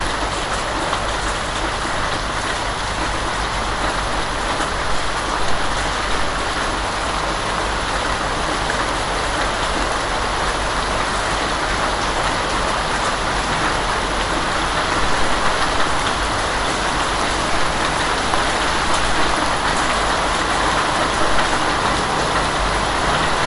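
Water dripping loudly during heavy rain. 0:00.0 - 0:23.4

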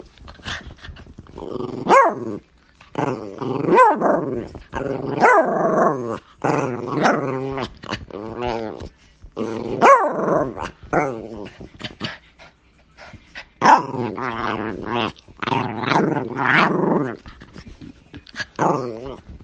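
A dog barks repeatedly. 0:00.0 - 0:19.4

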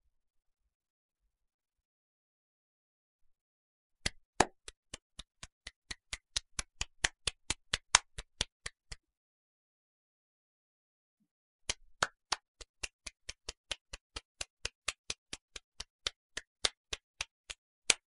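A single person claps their hands sharply indoors, producing clear, isolated claps that echo slightly. 0:04.0 - 0:18.1

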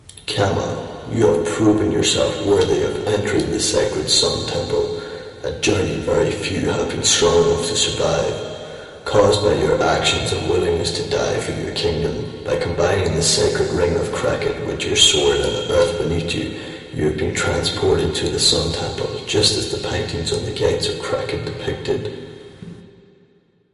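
A man is speaking loudly through a microphone. 0:00.0 - 0:23.7

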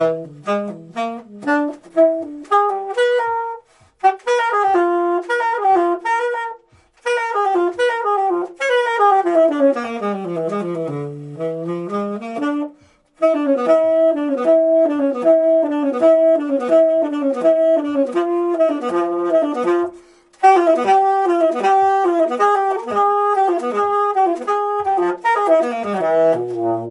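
A saxophone sound gradually rising in pitch. 0:00.1 - 0:03.7
Repeated saxophone sounds playing. 0:04.0 - 0:08.6
Saxophone playing, slowly fading. 0:08.7 - 0:13.2
A saxophone plays a repeated melody. 0:13.2 - 0:20.2
Repeated saxophone sounds in the same style. 0:13.2 - 0:26.9

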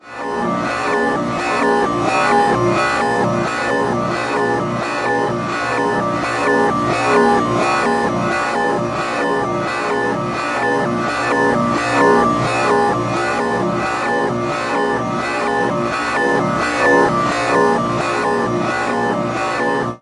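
A metallic alarm sound repeats rhythmically. 0:00.0 - 0:20.0

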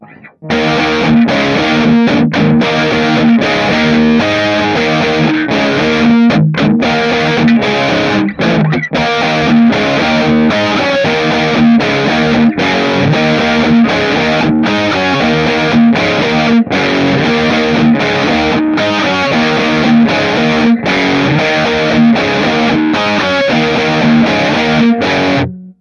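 An electric guitar is playing. 0:00.4 - 0:25.6

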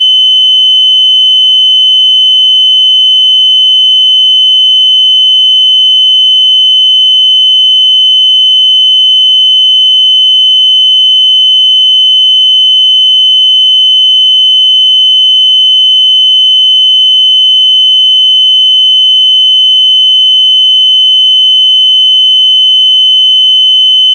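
Loud metallic beeping sounds are playing repeatedly. 0:00.0 - 0:24.1

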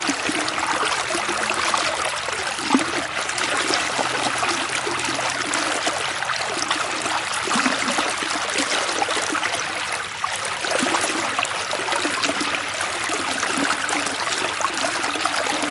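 A gentle, continuous stream of water flowing. 0:00.0 - 0:15.7

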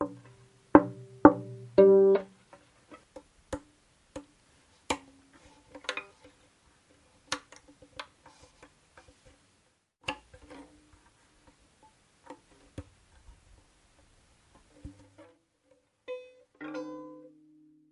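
Knocking sounds on a violin. 0:00.0 - 0:01.7
A single violin chord is played indoors. 0:01.7 - 0:02.8
The pegs of a violin being turned. 0:03.0 - 0:15.7
An out-of-tune glissando is played indoors. 0:16.4 - 0:17.9

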